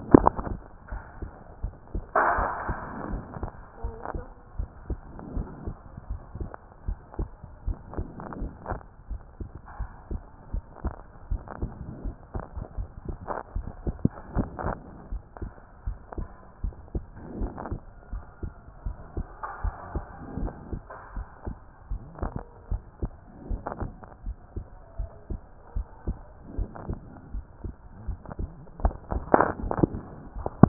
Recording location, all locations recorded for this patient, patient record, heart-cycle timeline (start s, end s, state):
pulmonary valve (PV)
aortic valve (AV)+pulmonary valve (PV)+tricuspid valve (TV)+mitral valve (MV)
#Age: nan
#Sex: Female
#Height: nan
#Weight: nan
#Pregnancy status: True
#Murmur: Absent
#Murmur locations: nan
#Most audible location: nan
#Systolic murmur timing: nan
#Systolic murmur shape: nan
#Systolic murmur grading: nan
#Systolic murmur pitch: nan
#Systolic murmur quality: nan
#Diastolic murmur timing: nan
#Diastolic murmur shape: nan
#Diastolic murmur grading: nan
#Diastolic murmur pitch: nan
#Diastolic murmur quality: nan
#Outcome: Normal
#Campaign: 2014 screening campaign
0.00	3.82	unannotated
3.82	3.94	S1
3.94	4.14	systole
4.14	4.24	S2
4.24	4.58	diastole
4.58	4.68	S1
4.68	4.88	systole
4.88	4.98	S2
4.98	5.34	diastole
5.34	5.48	S1
5.48	5.66	systole
5.66	5.76	S2
5.76	6.10	diastole
6.10	6.20	S1
6.20	6.38	systole
6.38	6.48	S2
6.48	6.86	diastole
6.86	6.98	S1
6.98	7.18	systole
7.18	7.28	S2
7.28	7.66	diastole
7.66	7.78	S1
7.78	7.96	systole
7.96	8.06	S2
8.06	8.40	diastole
8.40	8.52	S1
8.52	8.70	systole
8.70	8.80	S2
8.80	9.10	diastole
9.10	9.20	S1
9.20	9.40	systole
9.40	9.50	S2
9.50	9.78	diastole
9.78	9.90	S1
9.90	10.10	systole
10.10	10.22	S2
10.22	10.52	diastole
10.52	10.64	S1
10.64	10.84	systole
10.84	10.94	S2
10.94	11.30	diastole
11.30	11.42	S1
11.42	11.60	systole
11.60	11.70	S2
11.70	12.04	diastole
12.04	12.16	S1
12.16	12.34	systole
12.34	12.44	S2
12.44	12.76	diastole
12.76	12.88	S1
12.88	13.06	systole
13.06	13.16	S2
13.16	13.54	diastole
13.54	13.66	S1
13.66	13.86	systole
13.86	13.96	S2
13.96	14.34	diastole
14.34	14.48	S1
14.48	14.64	systole
14.64	14.76	S2
14.76	15.10	diastole
15.10	15.22	S1
15.22	15.42	systole
15.42	15.50	S2
15.50	15.86	diastole
15.86	15.98	S1
15.98	16.18	systole
16.18	16.28	S2
16.28	16.62	diastole
16.62	16.74	S1
16.74	16.94	systole
16.94	17.04	S2
17.04	17.38	diastole
17.38	17.52	S1
17.52	17.70	systole
17.70	17.80	S2
17.80	18.12	diastole
18.12	18.24	S1
18.24	18.42	systole
18.42	18.52	S2
18.52	18.84	diastole
18.84	18.96	S1
18.96	19.16	systole
19.16	19.26	S2
19.26	19.62	diastole
19.62	19.74	S1
19.74	19.94	systole
19.94	20.04	S2
20.04	20.38	diastole
20.38	20.52	S1
20.52	20.72	systole
20.72	20.82	S2
20.82	21.16	diastole
21.16	21.26	S1
21.26	21.46	systole
21.46	21.56	S2
21.56	21.90	diastole
21.90	22.02	S1
22.02	22.22	systole
22.22	22.32	S2
22.32	22.70	diastole
22.70	22.82	S1
22.82	23.02	systole
23.02	23.12	S2
23.12	23.48	diastole
23.48	23.62	S1
23.62	23.80	systole
23.80	23.92	S2
23.92	24.26	diastole
24.26	24.36	S1
24.36	24.56	systole
24.56	24.66	S2
24.66	24.98	diastole
24.98	25.10	S1
25.10	25.30	systole
25.30	25.40	S2
25.40	25.76	diastole
25.76	25.86	S1
25.86	26.06	systole
26.06	26.16	S2
26.16	26.56	diastole
26.56	26.68	S1
26.68	26.88	systole
26.88	26.98	S2
26.98	27.34	diastole
27.34	27.44	S1
27.44	27.64	systole
27.64	27.74	S2
27.74	28.06	diastole
28.06	28.18	S1
28.18	28.40	systole
28.40	28.50	S2
28.50	28.82	diastole
28.82	30.69	unannotated